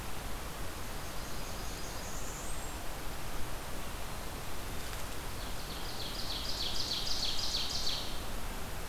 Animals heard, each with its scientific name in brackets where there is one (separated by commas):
Ovenbird (Seiurus aurocapilla), Blackburnian Warbler (Setophaga fusca)